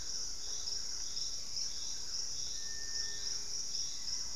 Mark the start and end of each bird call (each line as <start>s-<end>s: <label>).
0.0s-1.1s: Collared Trogon (Trogon collaris)
0.0s-4.4s: Hauxwell's Thrush (Turdus hauxwelli)
0.0s-4.4s: Thrush-like Wren (Campylorhynchus turdinus)